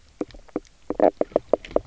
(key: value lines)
label: biophony, knock croak
recorder: SoundTrap 300